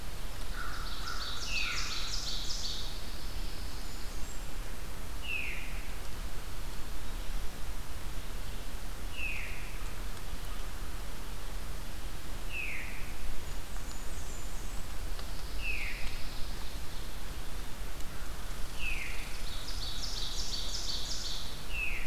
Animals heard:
American Crow (Corvus brachyrhynchos)
Pine Warbler (Setophaga pinus)
Blackburnian Warbler (Setophaga fusca)
Ovenbird (Seiurus aurocapilla)
Veery (Catharus fuscescens)
Red Squirrel (Tamiasciurus hudsonicus)

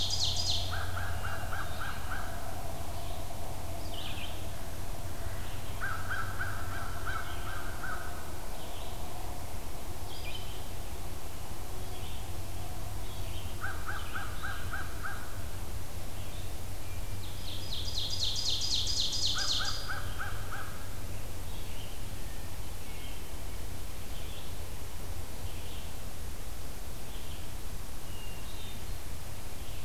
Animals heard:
Hermit Thrush (Catharus guttatus)
American Crow (Corvus brachyrhynchos)
Ovenbird (Seiurus aurocapilla)
Red-eyed Vireo (Vireo olivaceus)

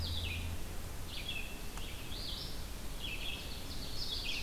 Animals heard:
Red-eyed Vireo (Vireo olivaceus)
Ovenbird (Seiurus aurocapilla)

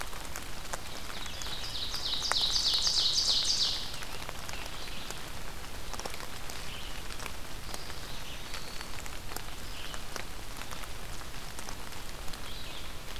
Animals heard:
Hermit Thrush (Catharus guttatus)
Red-eyed Vireo (Vireo olivaceus)
Black-throated Green Warbler (Setophaga virens)
Ovenbird (Seiurus aurocapilla)

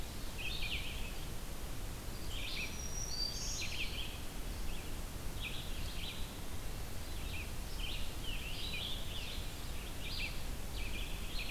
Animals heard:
Black-throated Green Warbler (Setophaga virens)
Red-eyed Vireo (Vireo olivaceus)

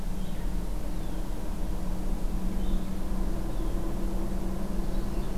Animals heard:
Red-eyed Vireo (Vireo olivaceus)

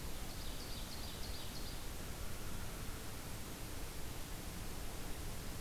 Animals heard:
Ovenbird (Seiurus aurocapilla)

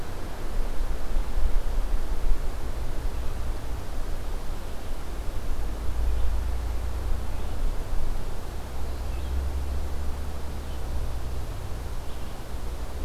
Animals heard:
Red-eyed Vireo (Vireo olivaceus)

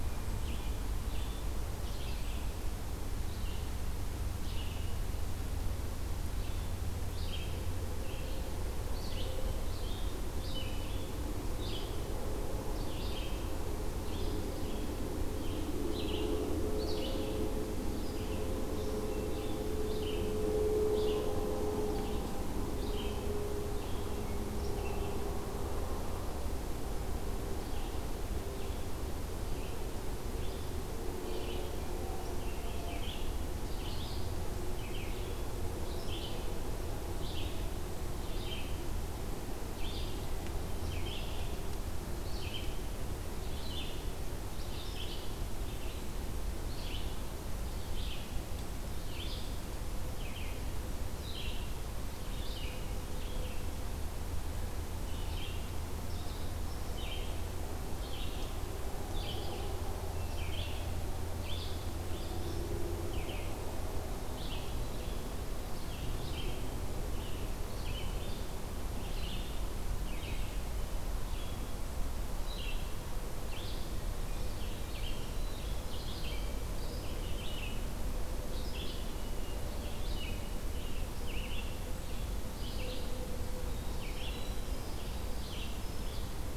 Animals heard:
Red-eyed Vireo (Vireo olivaceus)
Winter Wren (Troglodytes hiemalis)
Hermit Thrush (Catharus guttatus)

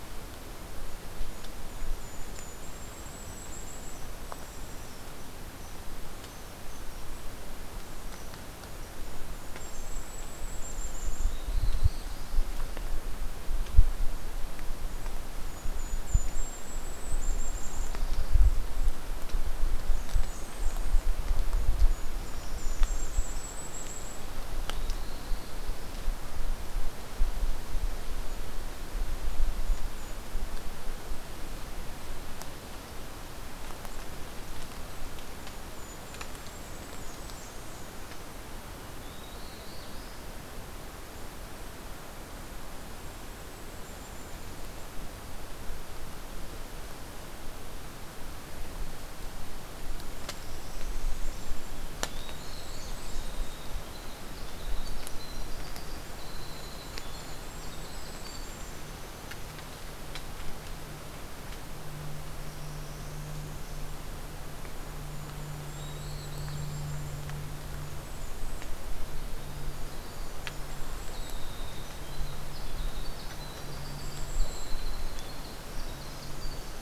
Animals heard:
Northern Parula (Setophaga americana)
Black-throated Blue Warbler (Setophaga caerulescens)
Blackburnian Warbler (Setophaga fusca)
Golden-crowned Kinglet (Regulus satrapa)
Winter Wren (Troglodytes hiemalis)

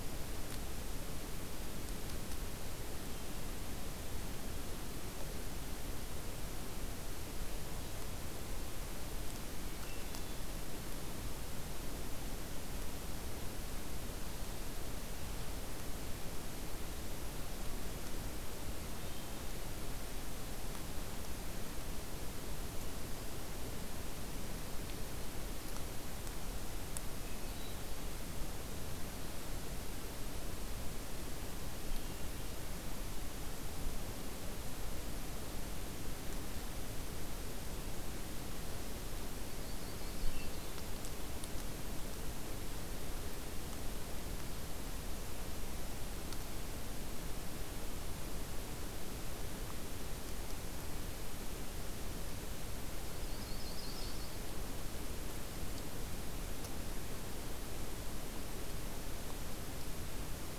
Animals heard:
Yellow-rumped Warbler (Setophaga coronata)
Hermit Thrush (Catharus guttatus)

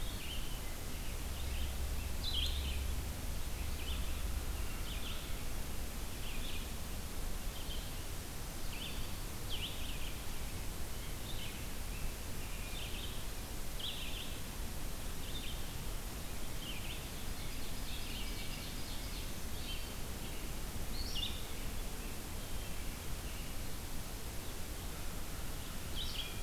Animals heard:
Red-eyed Vireo (Vireo olivaceus)
Ovenbird (Seiurus aurocapilla)

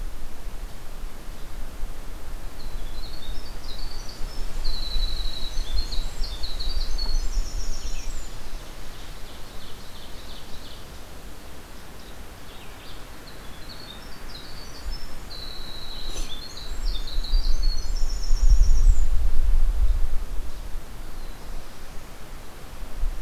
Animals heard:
Black-throated Blue Warbler (Setophaga caerulescens)
Winter Wren (Troglodytes hiemalis)
Ovenbird (Seiurus aurocapilla)

